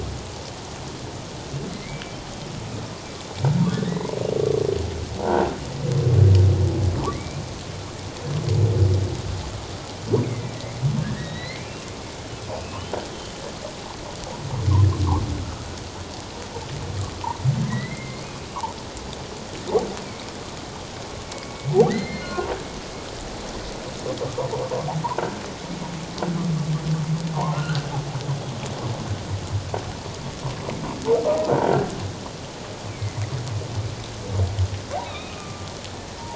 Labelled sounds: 1.7	2.0	humpback whale, 2.0 to 2.4 kHz
3.7	4.1	humpback whale, 1.7 to 2.2 kHz
5.2	5.5	croaking sound likely from a nearby submerged object, 1.3 to 1.7 kHz
7.1	7.4	humpback whale, 1.9 to 2.5 kHz
10.2	10.5	humpback whale, 1.9 to 2.5 kHz
11.0	12.8	humpback whale, 1.5 to 4.4 kHz
15.4	15.7	humpback whale, 1.2 to 1.4 kHz
17.6	18.3	humpback whale, 1.8 to 2.3 kHz
21.3	21.6	humpback whale, 2.2 to 2.3 kHz
21.9	22.5	humpback whale, 1.3 to 4.3 kHz
25.2	25.4	humpback whale, 1.3 to 1.7 kHz
27.5	27.9	humpback whale, 1.3 to 1.6 kHz
31.5	31.9	croaking sound likely from a nearby submerged object, 1.3 to 1.7 kHz
32.9	33.2	humpback whale, 2.0 to 2.4 kHz
35.0	35.7	humpback whale, 1.2 to 4.0 kHz

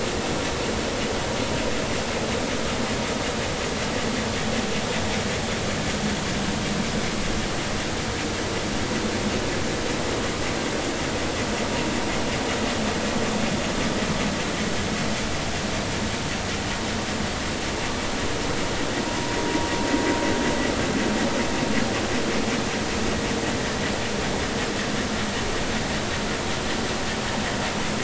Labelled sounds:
19.1	19.3	vessel noise, 0.93 to 1.1 kHz

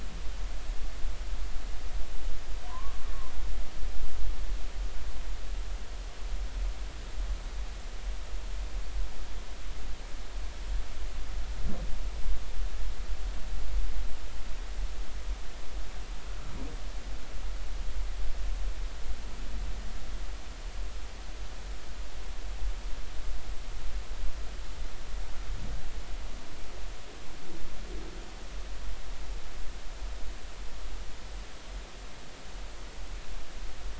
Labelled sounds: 2.7	2.9	humpback whale, 0.90 to 1.2 kHz

